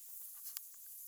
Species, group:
Euchorthippus declivus, Orthoptera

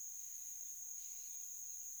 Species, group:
Phaneroptera nana, Orthoptera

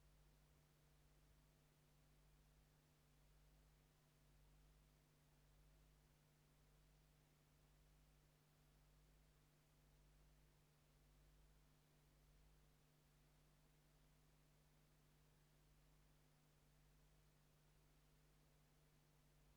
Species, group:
Leptophyes laticauda, Orthoptera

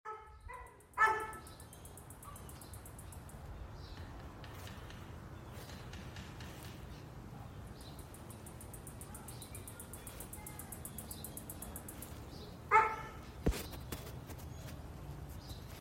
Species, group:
Microcentrum rhombifolium, Orthoptera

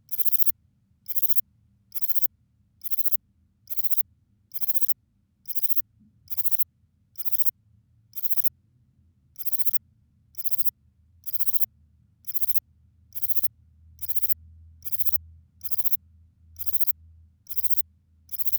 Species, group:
Platycleis grisea, Orthoptera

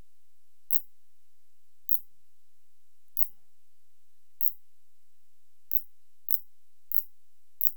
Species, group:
Phaneroptera nana, Orthoptera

